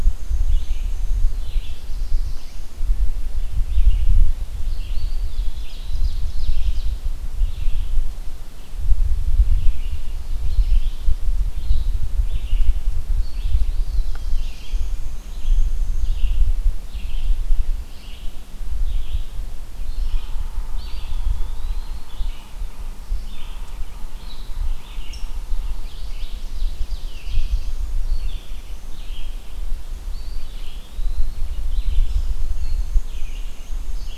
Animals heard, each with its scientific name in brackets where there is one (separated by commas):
Red-eyed Vireo (Vireo olivaceus), Eastern Wood-Pewee (Contopus virens), Ovenbird (Seiurus aurocapilla), Black-and-white Warbler (Mniotilta varia), Black-throated Blue Warbler (Setophaga caerulescens)